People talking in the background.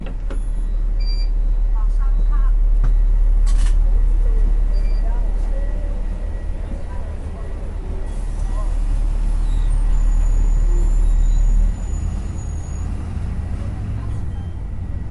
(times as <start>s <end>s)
6.0s 12.0s